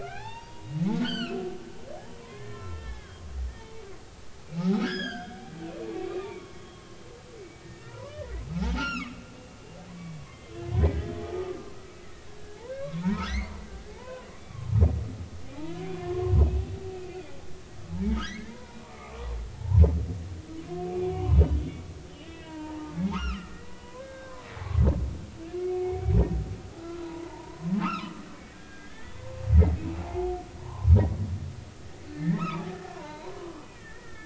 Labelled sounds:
0.0	1.5	humpback whale, 0.80 to 5.7 kHz
2.2	3.2	humpback whale, 0.93 to 3.3 kHz
3.6	3.8	humpback whale, 0.83 to 0.96 kHz
4.5	5.4	humpback whale, 0.80 to 6.8 kHz
5.9	6.6	humpback whale, 1.0 to 2.5 kHz
7.4	9.1	humpback whale, 0.80 to 5.7 kHz
10.2	11.1	humpback whale, 1.8 to 2.2 kHz
11.7	13.3	humpback whale, 1.2 to 2.5 kHz
13.9	14.6	humpback whale, 0.80 to 4.6 kHz
15.7	16.8	humpback whale, 0.99 to 3.1 kHz
17.1	19.2	humpback whale, 0.80 to 3.5 kHz
19.5	19.8	humpback whale, 0.80 to 1.1 kHz
20.9	21.8	humpback whale, 0.86 to 3.5 kHz
22.1	24.3	humpback whale, 0.80 to 3.8 kHz
25.5	26.1	humpback whale, 0.80 to 2.3 kHz
26.8	29.1	humpback whale, 0.83 to 2.8 kHz
29.8	30.9	humpback whale, 0.80 to 2.8 kHz
32.1	34.2	humpback whale, 0.80 to 4.1 kHz

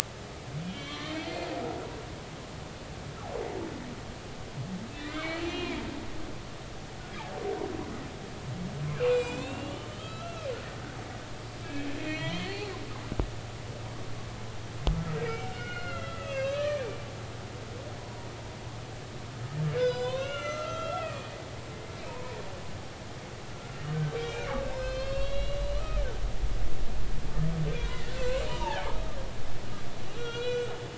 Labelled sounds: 0.6	1.5	humpback whale, 1.0 to 3.6 kHz
5.0	5.8	humpback whale, 1.7 to 4.4 kHz
9.0	10.5	humpback whale, 1.2 to 7.7 kHz
11.6	12.7	humpback whale, 1.8 to 4.6 kHz
13.0	13.4	humpback whale, 2.1 to 2.6 kHz
15.1	17.0	humpback whale, 1.1 to 6.2 kHz
18.0	18.3	humpback whale, 0.90 to 1.1 kHz
19.7	22.4	humpback whale, 0.90 to 6.3 kHz
23.9	26.0	humpback whale, 1.1 to 6.5 kHz
27.7	29.0	humpback whale, 0.80 to 3.6 kHz
30.1	30.7	humpback whale, 1.3 to 3.9 kHz

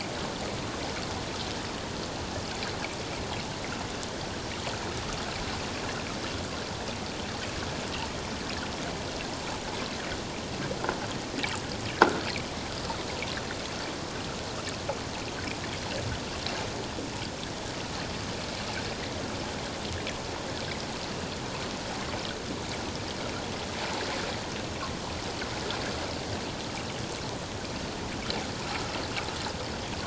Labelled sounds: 11.9	12.2	croaking sound likely from a nearby submerged object, 1.3 to 1.8 kHz

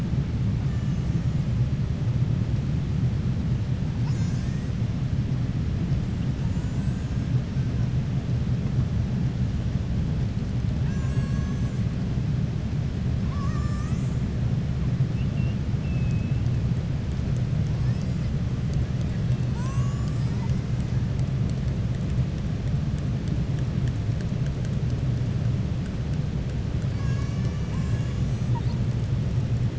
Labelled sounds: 13.2	14.0	killer whale, southern resident, 1.0 to 2.6 kHz

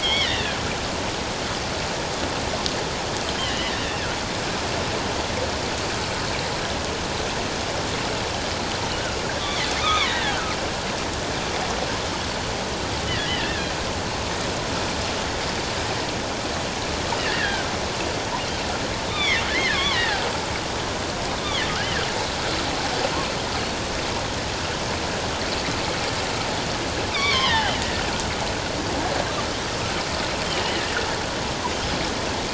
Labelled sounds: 0.0	0.6	killer whale, offshore, 1.6 to 3.8 kHz
3.4	3.7	killer whale, offshore, 1.7 to 3.2 kHz
9.8	10.4	killer whale, offshore, 0.97 to 3.8 kHz
13.2	13.7	killer whale, offshore, 1.6 to 2.1 kHz
17.2	17.7	killer whale, offshore, 1.4 to 2.0 kHz
19.1	20.3	killer whale, offshore, 1.4 to 3.8 kHz
27.1	27.8	killer whale, offshore, 0.78 to 5.9 kHz

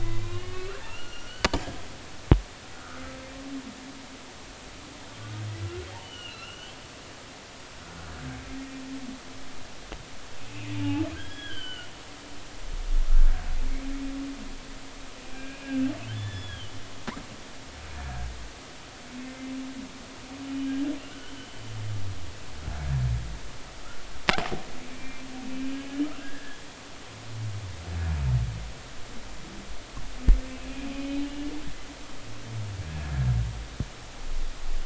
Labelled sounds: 0.0	1.3	humpback whale, 1.1 to 5.8 kHz
2.7	3.0	humpback whale, 1.2 to 1.5 kHz
5.6	6.8	humpback whale, 1.3 to 3.2 kHz
8.1	8.4	humpback whale, 1.5 to 1.7 kHz
10.4	11.9	humpback whale, 1.4 to 3.4 kHz
15.3	16.7	humpback whale, 1.4 to 3.6 kHz
21.1	21.6	humpback whale, 2.9 to 3.2 kHz
24.9	25.2	humpback whale, 2.3 to 2.4 kHz
26.2	26.6	humpback whale, 1.5 to 1.8 kHz
31.2	31.5	humpback whale, 2.8 to 2.9 kHz

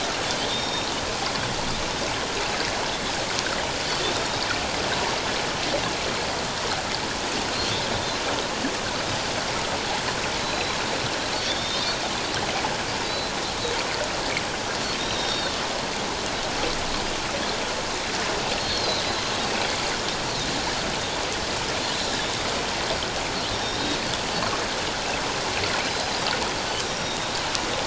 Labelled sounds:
4.2	4.4	Pacific white-sided dolphin, 3.6 to 3.8 kHz
10.4	10.8	Pacific white-sided dolphin, 3.9 to 4.1 kHz
11.5	12.0	Pacific white-sided dolphin, 3.2 to 3.8 kHz
13.0	13.3	Pacific white-sided dolphin, 3.8 to 4.1 kHz
15.0	15.6	Pacific white-sided dolphin, 3.5 to 4.6 kHz
18.6	19.3	Pacific white-sided dolphin, 3.6 to 4.4 kHz
23.6	24.0	Pacific white-sided dolphin, 3.6 to 5.6 kHz
25.8	27.2	Pacific white-sided dolphin, 4.0 to 5.8 kHz

